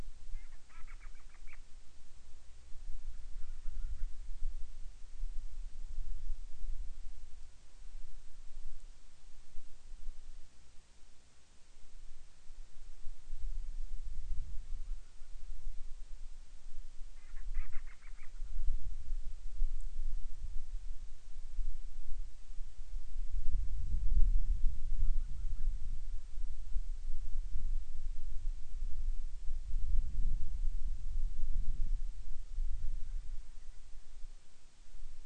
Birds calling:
Band-rumped Storm-Petrel (Hydrobates castro)

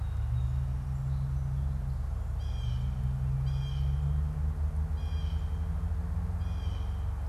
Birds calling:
Blue Jay (Cyanocitta cristata)

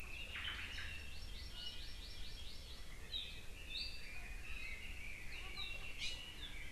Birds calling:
Red-billed Leiothrix (Leiothrix lutea)
Hawaii Amakihi (Chlorodrepanis virens)
Omao (Myadestes obscurus)

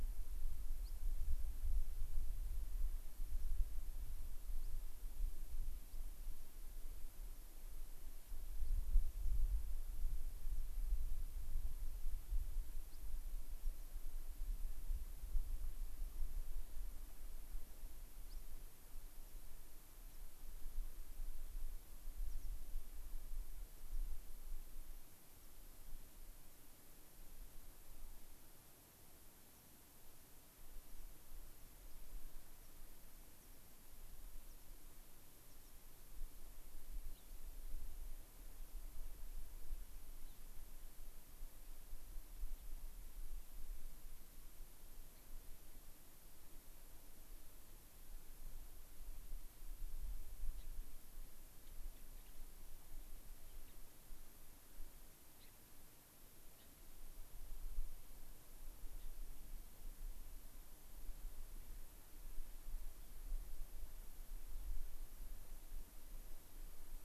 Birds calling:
American Pipit (Anthus rubescens)
Gray-crowned Rosy-Finch (Leucosticte tephrocotis)

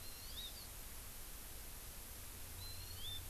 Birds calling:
Hawaii Amakihi (Chlorodrepanis virens)

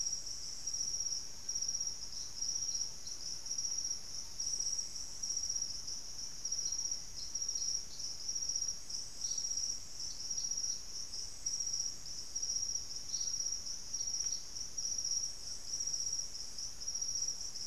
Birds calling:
White-throated Toucan (Ramphastos tucanus)
Thrush-like Wren (Campylorhynchus turdinus)

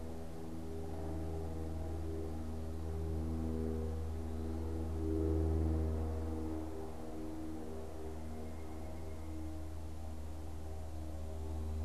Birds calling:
Pileated Woodpecker (Dryocopus pileatus)

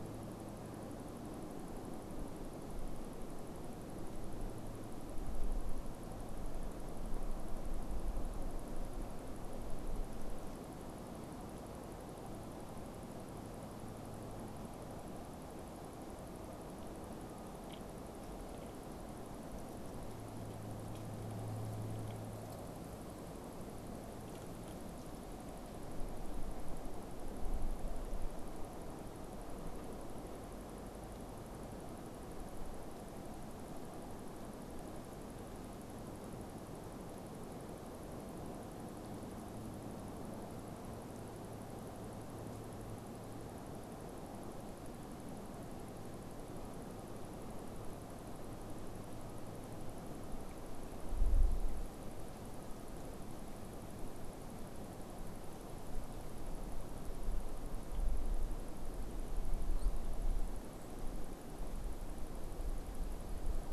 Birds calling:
unidentified bird

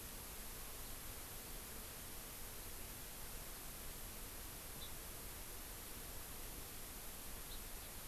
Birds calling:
Hawaii Amakihi (Chlorodrepanis virens)

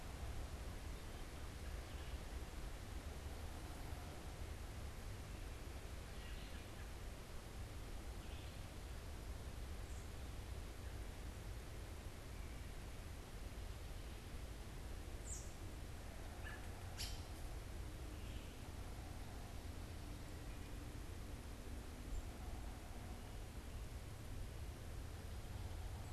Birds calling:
American Robin (Turdus migratorius)
Red-eyed Vireo (Vireo olivaceus)
Wood Thrush (Hylocichla mustelina)

